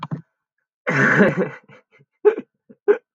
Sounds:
Laughter